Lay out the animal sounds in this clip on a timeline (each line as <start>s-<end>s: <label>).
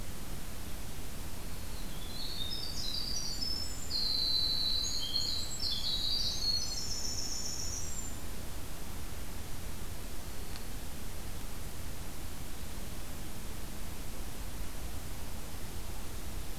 1.4s-8.3s: Winter Wren (Troglodytes hiemalis)